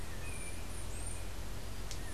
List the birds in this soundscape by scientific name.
Arremon brunneinucha, Icterus chrysater